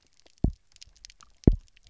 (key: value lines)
label: biophony, double pulse
recorder: SoundTrap 300